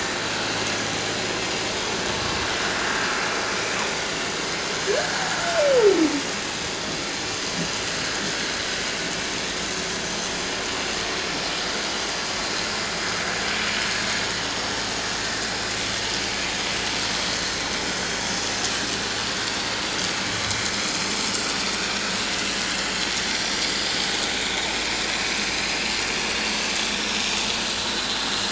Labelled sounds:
4.9	5.2	humpback whale, 1.5 to 1.8 kHz
10.1	10.3	vessel noise, 6.0 to 6.2 kHz
21.9	22.3	vessel noise, 3.7 to 3.9 kHz
23.5	24.5	vessel noise, 3.6 to 5.0 kHz
27.8	28.2	vessel noise, 3.8 to 4.1 kHz

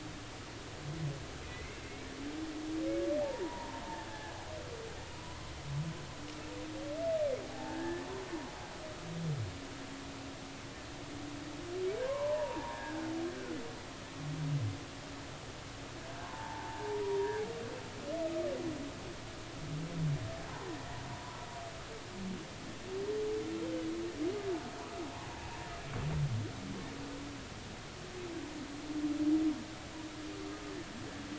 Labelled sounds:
1.5	2.1	humpback whale, 1.9 to 2.3 kHz
3.2	3.8	humpback whale, 0.80 to 1.1 kHz
5.2	5.5	humpback whale, 0.93 to 1.1 kHz
7.4	8.0	humpback whale, 0.80 to 1.8 kHz
12.1	13.6	humpback whale, 0.83 to 1.8 kHz
16.2	17.4	humpback whale, 0.80 to 1.1 kHz

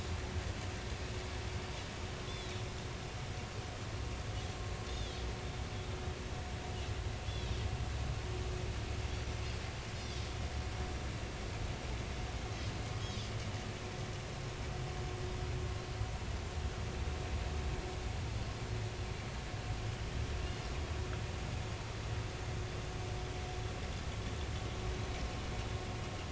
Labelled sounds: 3.3	3.6	Pacific white-sided dolphin, 3.6 to 4.3 kHz
4.9	5.2	Pacific white-sided dolphin, 3.1 to 3.7 kHz
8.3	8.6	Pacific white-sided dolphin, 3.7 to 4.2 kHz
9.9	10.2	Pacific white-sided dolphin, 3.2 to 5.3 kHz
13.0	13.3	Pacific white-sided dolphin, 3.1 to 5.3 kHz

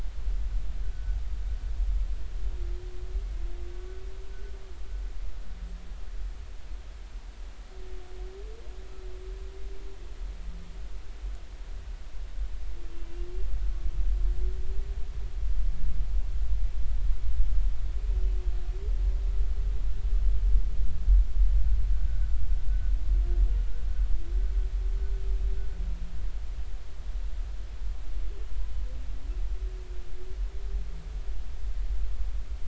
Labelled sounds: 0.9	1.2	humpback whale, 1.4 to 1.6 kHz

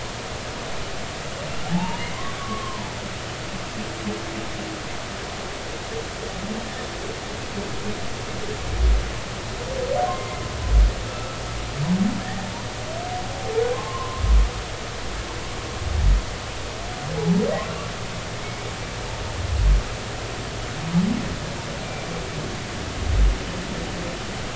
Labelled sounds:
1.7	2.9	humpback whale, 0.80 to 2.9 kHz
10.1	10.4	humpback whale, 0.99 to 1.1 kHz
11.0	11.4	humpback whale, 1.2 to 1.4 kHz
12.2	12.5	humpback whale, 1.7 to 2.0 kHz
14.7	15.2	humpback whale, 0.96 to 1.2 kHz
17.2	17.4	humpback whale, 0.80 to 0.99 kHz

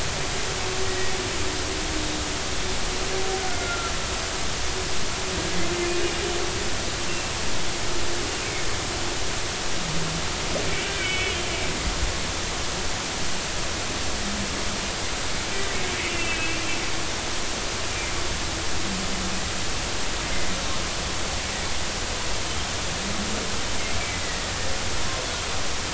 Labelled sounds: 0.9	1.1	humpback whale, 1.8 to 2.0 kHz
3.5	3.9	humpback whale, 1.3 to 2.1 kHz
10.7	11.4	humpback whale, 2.1 to 3.4 kHz
16.1	16.6	humpback whale, 2.5 to 2.8 kHz

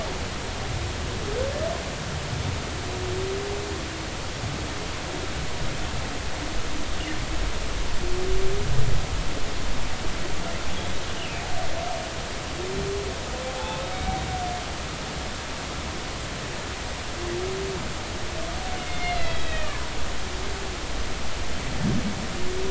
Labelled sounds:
11.2	11.5	humpback whale, 2.3 to 3.0 kHz
13.5	14.2	humpback whale, 0.80 to 2.3 kHz
18.7	19.8	humpback whale, 1.7 to 4.0 kHz
20.6	20.9	humpback whale, 0.93 to 1.2 kHz

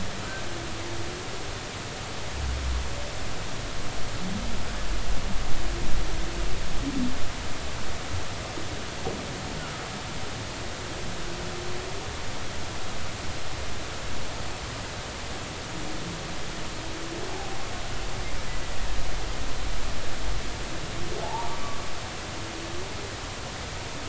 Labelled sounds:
21.2	21.6	humpback whale, 0.80 to 1.0 kHz

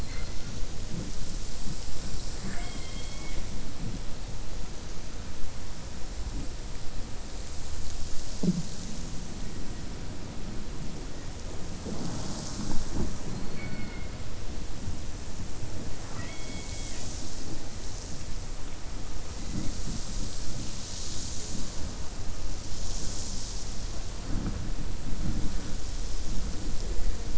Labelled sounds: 13.4	14.1	killer whale, 1.1 to 2.9 kHz

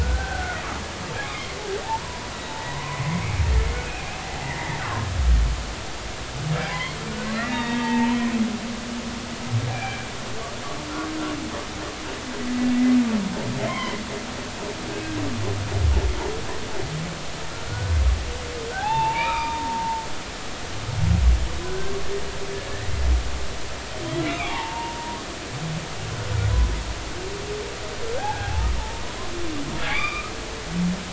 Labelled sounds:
0.0	0.6	humpback whale, 1.4 to 1.6 kHz
1.8	2.2	humpback whale, 0.80 to 1.1 kHz
2.6	3.4	humpback whale, 0.93 to 2.4 kHz
4.5	5.1	humpback whale, 0.96 to 2.1 kHz
6.7	8.2	humpback whale, 0.83 to 3.8 kHz
9.7	11.1	humpback whale, 1.5 to 2.5 kHz
13.6	14.0	humpback whale, 0.93 to 3.3 kHz
17.7	20.0	humpback whale, 0.80 to 3.6 kHz
21.6	22.0	humpback whale, 1.4 to 1.6 kHz
24.2	25.2	humpback whale, 0.80 to 2.9 kHz
28.2	28.7	humpback whale, 0.80 to 1.7 kHz
29.8	30.3	humpback whale, 0.83 to 4.9 kHz

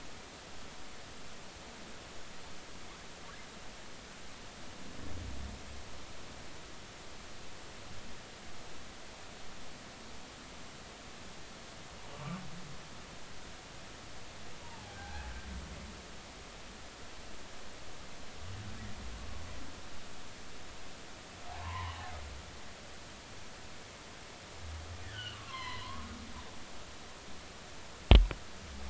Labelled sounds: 12.1	12.4	humpback whale, 1.0 to 1.2 kHz
14.6	15.3	humpback whale, 0.80 to 1.7 kHz
21.5	22.1	humpback whale, 0.80 to 3.0 kHz
25.0	26.1	humpback whale, 0.93 to 4.3 kHz

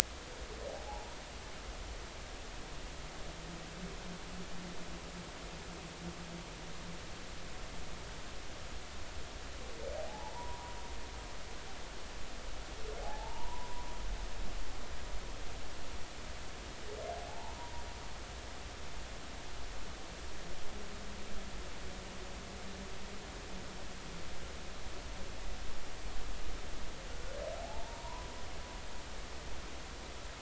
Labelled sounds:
0.7	1.1	humpback whale, 0.80 to 0.99 kHz
10.0	10.7	humpback whale, 0.80 to 1.0 kHz
13.0	13.9	humpback whale, 0.80 to 1.1 kHz
17.3	17.8	humpback whale, 0.80 to 1.0 kHz
27.6	28.3	humpback whale, 0.80 to 1.1 kHz

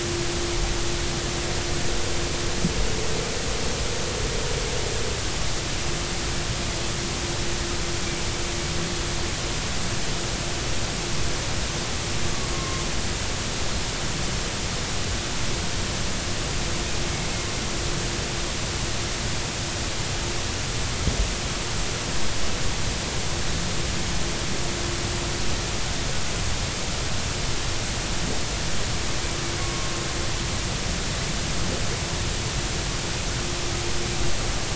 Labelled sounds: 12.5	12.8	humpback whale, 0.99 to 1.1 kHz
29.6	29.9	humpback whale, 1.0 to 1.2 kHz

